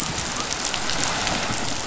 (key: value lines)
label: biophony
recorder: SoundTrap 500